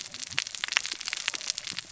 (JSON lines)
{"label": "biophony, cascading saw", "recorder": "SoundTrap 600 or HydroMoth"}